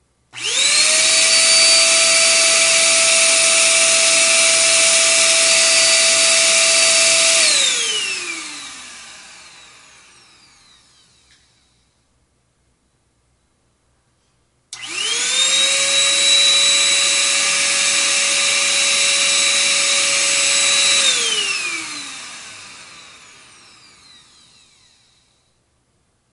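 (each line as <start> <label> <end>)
0.2 A vacuum cleaner drones and then fades away with a trailing whine when turned off. 9.8
14.4 A vacuum cleaner drones and then fades away with a trailing whine when turned off. 23.8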